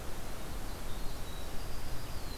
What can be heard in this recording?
Winter Wren